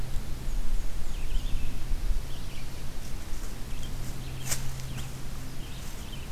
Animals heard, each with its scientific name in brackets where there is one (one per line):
Red-eyed Vireo (Vireo olivaceus)
Black-and-white Warbler (Mniotilta varia)